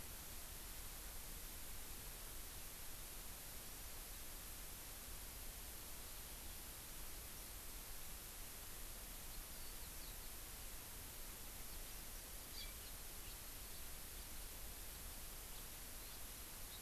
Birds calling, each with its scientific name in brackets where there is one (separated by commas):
Hawaii Amakihi (Chlorodrepanis virens), Eurasian Skylark (Alauda arvensis)